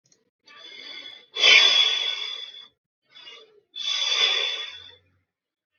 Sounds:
Sigh